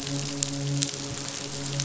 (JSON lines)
{"label": "biophony, midshipman", "recorder": "SoundTrap 500"}